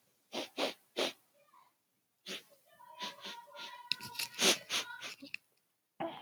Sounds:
Sniff